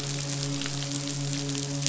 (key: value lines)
label: biophony, midshipman
recorder: SoundTrap 500